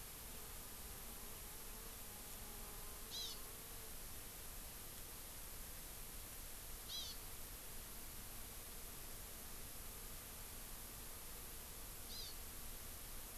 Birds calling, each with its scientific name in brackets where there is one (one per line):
Hawaii Amakihi (Chlorodrepanis virens)